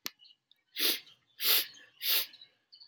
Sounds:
Sniff